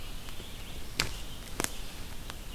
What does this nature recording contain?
Red-eyed Vireo